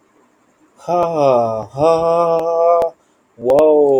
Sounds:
Sigh